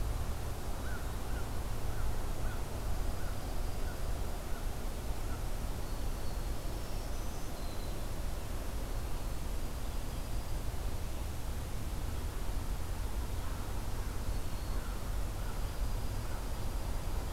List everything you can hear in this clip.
Dark-eyed Junco, Black-throated Green Warbler, American Crow